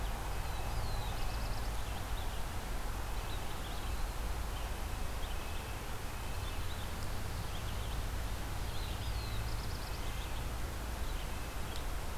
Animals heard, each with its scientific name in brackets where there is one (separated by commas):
Black-throated Blue Warbler (Setophaga caerulescens), Red-eyed Vireo (Vireo olivaceus), Red-breasted Nuthatch (Sitta canadensis)